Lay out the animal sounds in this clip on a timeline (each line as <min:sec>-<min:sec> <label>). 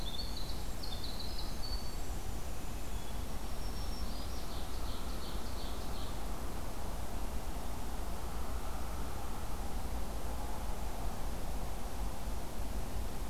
0:00.0-0:03.3 Winter Wren (Troglodytes hiemalis)
0:03.3-0:04.5 Black-throated Green Warbler (Setophaga virens)
0:03.9-0:06.2 Ovenbird (Seiurus aurocapilla)